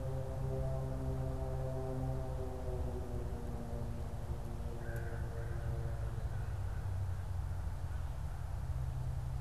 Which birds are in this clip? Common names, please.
American Crow